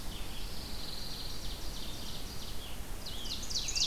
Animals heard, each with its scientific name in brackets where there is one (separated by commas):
Pine Warbler (Setophaga pinus), Ovenbird (Seiurus aurocapilla), Scarlet Tanager (Piranga olivacea)